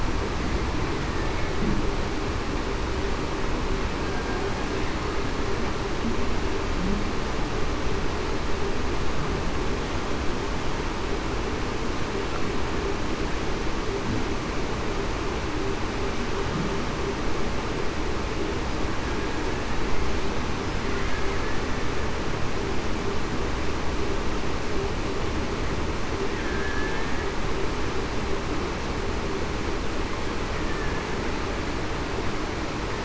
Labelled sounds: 26.6	27.2	killer whale, Bigg's (transient), 1.7 to 1.9 kHz

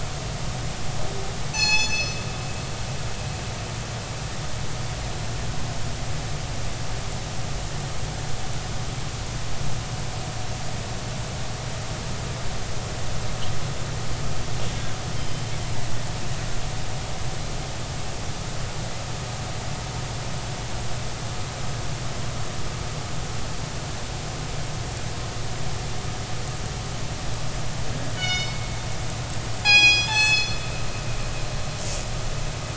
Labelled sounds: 1.5	2.2	killer whale, northern resident, G clan, call N24ii, 0.80 to 7.8 kHz
14.7	15.4	killer whale, northern resident, G clan, 1.5 to 3.2 kHz
28.1	28.6	killer whale, northern resident, G clan, call N24ii, 1.4 to 6.7 kHz
29.6	30.6	killer whale, northern resident, G clan, call N24ii, 0.80 to 7.8 kHz

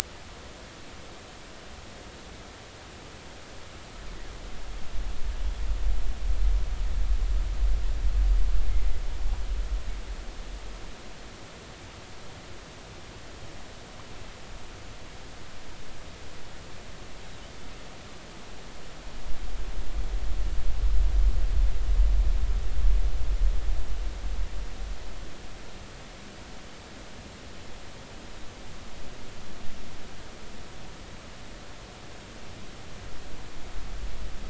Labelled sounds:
8.7	9.0	killer whale, northern resident, 2.0 to 2.2 kHz

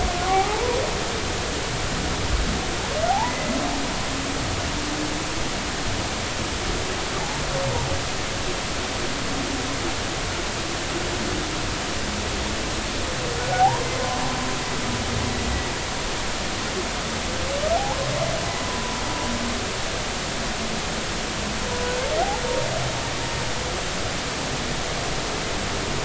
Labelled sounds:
0.3	0.6	humpback whale, 0.80 to 0.93 kHz
3.1	3.5	humpback whale, 0.80 to 2.1 kHz
13.4	13.9	humpback whale, 0.80 to 1.5 kHz
18.7	19.0	humpback whale, 0.93 to 1.0 kHz

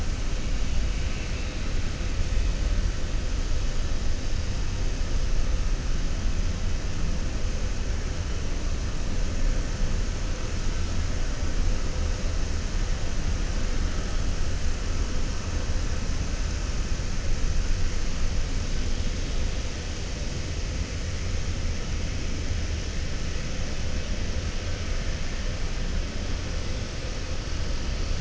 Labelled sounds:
0.9	1.6	vessel noise, 2.2 to 3.6 kHz

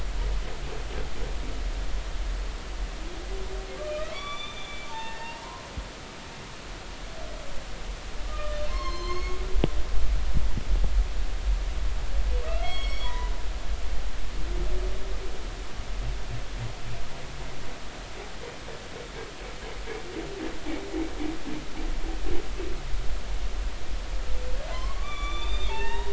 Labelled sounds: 3.8	5.7	humpback whale, 0.83 to 6.0 kHz
8.2	9.4	humpback whale, 0.99 to 6.6 kHz
12.6	13.3	humpback whale, 0.93 to 5.7 kHz
24.7	26.1	humpback whale, 0.83 to 6.0 kHz

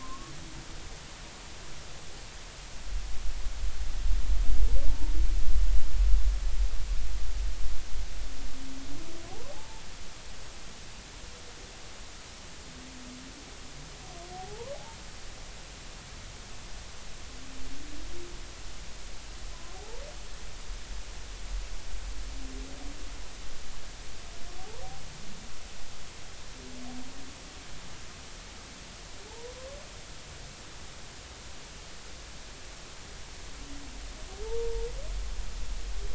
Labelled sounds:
0.0	0.3	humpback whale, 0.93 to 1.2 kHz
4.9	5.1	humpback whale, 0.83 to 0.96 kHz
9.3	9.8	humpback whale, 0.80 to 1.1 kHz
14.3	14.8	humpback whale, 0.80 to 1.1 kHz
19.5	20.0	humpback whale, 0.80 to 1.1 kHz
24.6	24.8	humpback whale, 0.80 to 1.1 kHz
29.3	29.5	humpback whale, 0.80 to 1.0 kHz
34.4	34.8	humpback whale, 0.83 to 0.99 kHz

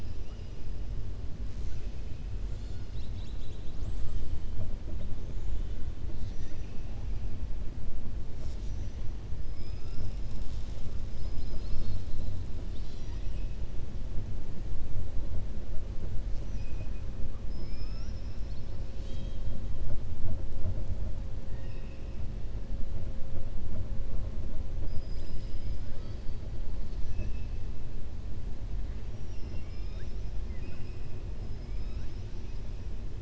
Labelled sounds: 11.1	12.3	killer whale, southern resident, 1.3 to 5.7 kHz
16.5	17.0	killer whale, southern resident, 1.6 to 2.7 kHz
17.4	18.8	killer whale, southern resident, 1.2 to 5.8 kHz
21.4	22.1	killer whale, southern resident, 0.94 to 3.8 kHz
29.1	31.0	killer whale, southern resident, 0.71 to 5.9 kHz

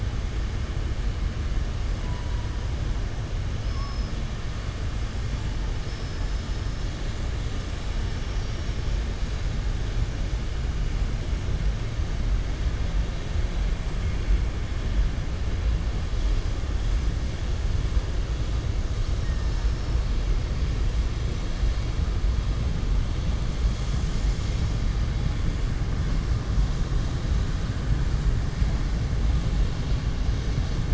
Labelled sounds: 3.6	4.1	killer whale, southern resident, 4.4 to 5.6 kHz

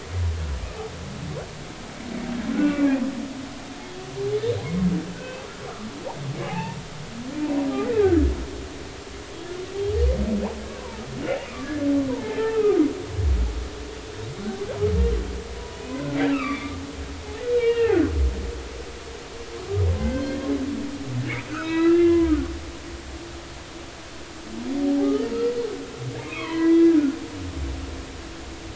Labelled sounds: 2.5	3.0	humpback whale, 1.1 to 2.8 kHz
5.2	5.9	humpback whale, 1.1 to 2.7 kHz
6.5	6.8	humpback whale, 0.80 to 2.8 kHz
7.8	8.2	humpback whale, 1.2 to 2.1 kHz
11.5	12.8	humpback whale, 0.83 to 1.9 kHz
16.3	16.8	humpback whale, 1.1 to 2.9 kHz
17.5	18.0	humpback whale, 1.7 to 3.9 kHz
20.0	20.4	humpback whale, 1.5 to 2.1 kHz
21.5	22.5	humpback whale, 0.93 to 4.0 kHz
26.2	27.2	humpback whale, 0.93 to 3.4 kHz

